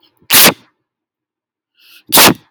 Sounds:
Sneeze